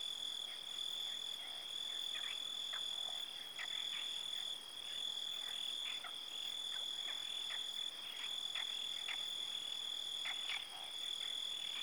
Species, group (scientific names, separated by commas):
Oecanthus pellucens, Orthoptera